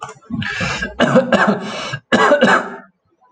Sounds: Cough